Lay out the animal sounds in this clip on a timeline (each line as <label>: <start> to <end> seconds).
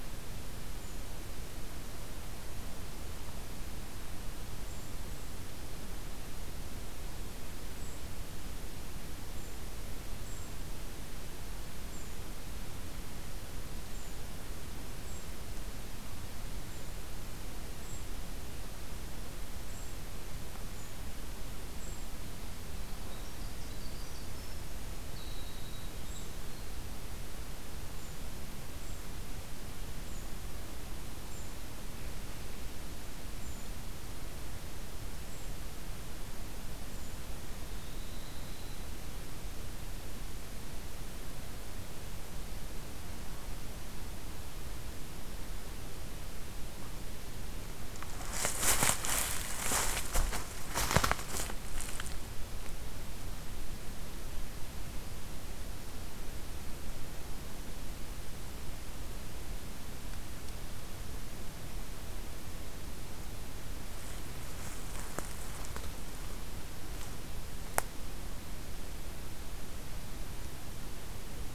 Brown Creeper (Certhia americana): 0.5 to 1.1 seconds
Brown Creeper (Certhia americana): 4.5 to 5.4 seconds
Brown Creeper (Certhia americana): 7.6 to 8.1 seconds
Brown Creeper (Certhia americana): 9.3 to 9.6 seconds
Brown Creeper (Certhia americana): 10.2 to 10.6 seconds
Brown Creeper (Certhia americana): 11.9 to 12.3 seconds
Brown Creeper (Certhia americana): 13.9 to 14.2 seconds
Brown Creeper (Certhia americana): 15.0 to 15.3 seconds
Brown Creeper (Certhia americana): 16.6 to 17.0 seconds
Brown Creeper (Certhia americana): 17.8 to 18.2 seconds
Brown Creeper (Certhia americana): 19.6 to 20.0 seconds
Brown Creeper (Certhia americana): 20.7 to 21.0 seconds
Brown Creeper (Certhia americana): 21.7 to 22.2 seconds
Winter Wren (Troglodytes hiemalis): 22.6 to 27.0 seconds
Brown Creeper (Certhia americana): 26.0 to 26.4 seconds
Brown Creeper (Certhia americana): 27.9 to 28.4 seconds
Brown Creeper (Certhia americana): 28.7 to 29.1 seconds
Brown Creeper (Certhia americana): 29.9 to 30.3 seconds
Brown Creeper (Certhia americana): 31.3 to 31.7 seconds
Brown Creeper (Certhia americana): 33.4 to 33.8 seconds
Brown Creeper (Certhia americana): 35.3 to 35.6 seconds
Brown Creeper (Certhia americana): 36.9 to 37.3 seconds
unidentified call: 37.5 to 39.0 seconds